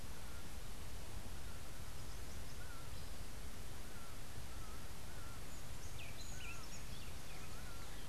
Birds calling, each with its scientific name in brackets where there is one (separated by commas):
Laughing Falcon (Herpetotheres cachinnans), Buff-throated Saltator (Saltator maximus)